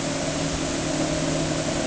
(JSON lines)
{"label": "anthrophony, boat engine", "recorder": "HydroMoth"}